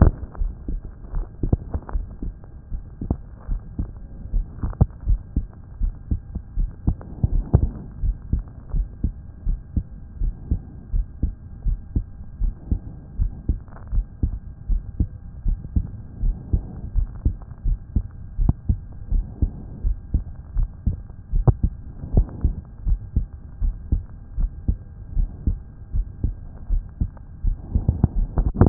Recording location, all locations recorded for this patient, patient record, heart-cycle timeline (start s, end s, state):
pulmonary valve (PV)
aortic valve (AV)+pulmonary valve (PV)+tricuspid valve (TV)+mitral valve (MV)
#Age: Child
#Sex: Male
#Height: 159.0 cm
#Weight: 38.2 kg
#Pregnancy status: False
#Murmur: Absent
#Murmur locations: nan
#Most audible location: nan
#Systolic murmur timing: nan
#Systolic murmur shape: nan
#Systolic murmur grading: nan
#Systolic murmur pitch: nan
#Systolic murmur quality: nan
#Diastolic murmur timing: nan
#Diastolic murmur shape: nan
#Diastolic murmur grading: nan
#Diastolic murmur pitch: nan
#Diastolic murmur quality: nan
#Outcome: Normal
#Campaign: 2014 screening campaign
0.00	4.94	unannotated
4.94	5.08	diastole
5.08	5.20	S1
5.20	5.36	systole
5.36	5.46	S2
5.46	5.80	diastole
5.80	5.92	S1
5.92	6.10	systole
6.10	6.20	S2
6.20	6.58	diastole
6.58	6.70	S1
6.70	6.86	systole
6.86	6.96	S2
6.96	7.30	diastole
7.30	7.44	S1
7.44	7.54	systole
7.54	7.68	S2
7.68	8.02	diastole
8.02	8.16	S1
8.16	8.32	systole
8.32	8.42	S2
8.42	8.74	diastole
8.74	8.86	S1
8.86	9.02	systole
9.02	9.12	S2
9.12	9.46	diastole
9.46	9.58	S1
9.58	9.76	systole
9.76	9.84	S2
9.84	10.20	diastole
10.20	10.34	S1
10.34	10.50	systole
10.50	10.60	S2
10.60	10.94	diastole
10.94	11.06	S1
11.06	11.22	systole
11.22	11.32	S2
11.32	11.66	diastole
11.66	11.78	S1
11.78	11.94	systole
11.94	12.04	S2
12.04	12.42	diastole
12.42	12.54	S1
12.54	12.70	systole
12.70	12.80	S2
12.80	13.18	diastole
13.18	13.32	S1
13.32	13.48	systole
13.48	13.58	S2
13.58	13.92	diastole
13.92	14.06	S1
14.06	14.22	systole
14.22	14.34	S2
14.34	14.70	diastole
14.70	14.82	S1
14.82	14.98	systole
14.98	15.08	S2
15.08	15.46	diastole
15.46	15.58	S1
15.58	15.74	systole
15.74	15.84	S2
15.84	16.22	diastole
16.22	16.36	S1
16.36	16.52	systole
16.52	16.62	S2
16.62	16.96	diastole
16.96	17.08	S1
17.08	17.24	systole
17.24	17.36	S2
17.36	17.66	diastole
17.66	17.78	S1
17.78	17.94	systole
17.94	18.04	S2
18.04	18.40	diastole
18.40	18.54	S1
18.54	18.68	systole
18.68	18.78	S2
18.78	19.12	diastole
19.12	19.24	S1
19.24	19.42	systole
19.42	19.50	S2
19.50	19.84	diastole
19.84	19.96	S1
19.96	20.12	systole
20.12	20.24	S2
20.24	20.56	diastole
20.56	20.68	S1
20.68	20.86	systole
20.86	20.96	S2
20.96	21.34	diastole
21.34	21.46	S1
21.46	21.64	systole
21.64	21.75	S2
21.75	22.14	diastole
22.14	22.26	S1
22.26	22.44	systole
22.44	22.54	S2
22.54	22.86	diastole
22.86	23.00	S1
23.00	23.16	systole
23.16	23.26	S2
23.26	23.62	diastole
23.62	23.74	S1
23.74	23.92	systole
23.92	24.02	S2
24.02	24.38	diastole
24.38	24.50	S1
24.50	24.68	systole
24.68	24.78	S2
24.78	25.16	diastole
25.16	25.28	S1
25.28	25.46	systole
25.46	25.58	S2
25.58	25.94	diastole
25.94	26.06	S1
26.06	26.24	systole
26.24	26.34	S2
26.34	26.70	diastole
26.70	26.82	S1
26.82	27.00	systole
27.00	27.10	S2
27.10	27.44	diastole
27.44	28.69	unannotated